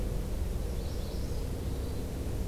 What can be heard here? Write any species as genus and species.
Setophaga magnolia, Catharus guttatus